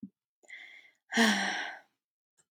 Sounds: Sigh